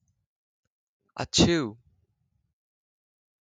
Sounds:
Sneeze